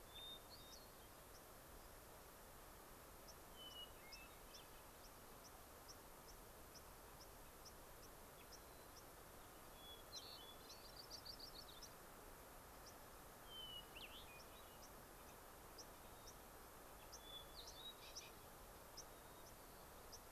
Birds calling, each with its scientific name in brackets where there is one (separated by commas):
White-crowned Sparrow (Zonotrichia leucophrys), Yellow-rumped Warbler (Setophaga coronata), Hermit Thrush (Catharus guttatus)